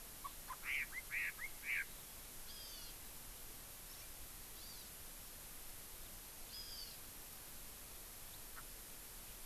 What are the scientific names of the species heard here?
Garrulax canorus, Chlorodrepanis virens